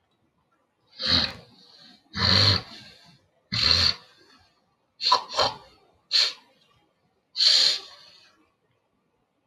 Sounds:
Throat clearing